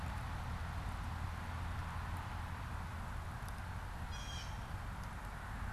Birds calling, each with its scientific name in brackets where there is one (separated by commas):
Blue Jay (Cyanocitta cristata)